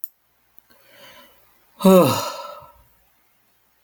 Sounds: Sigh